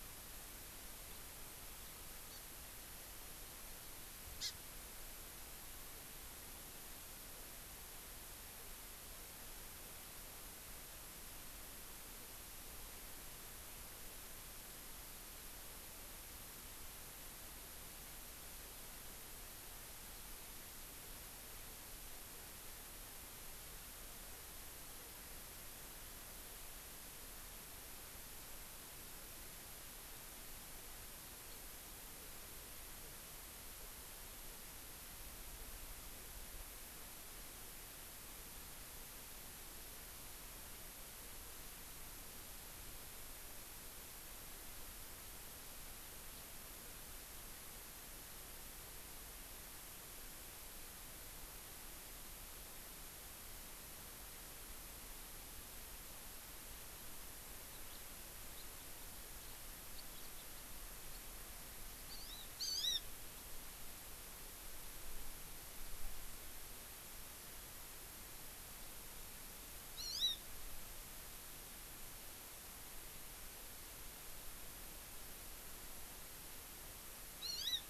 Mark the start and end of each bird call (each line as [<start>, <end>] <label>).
[2.30, 2.40] Hawaii Amakihi (Chlorodrepanis virens)
[4.40, 4.50] Hawaii Amakihi (Chlorodrepanis virens)
[57.90, 58.00] Hawaii Amakihi (Chlorodrepanis virens)
[62.10, 63.00] Hawaii Amakihi (Chlorodrepanis virens)
[70.00, 70.40] Hawaii Amakihi (Chlorodrepanis virens)
[77.40, 77.80] Hawaii Amakihi (Chlorodrepanis virens)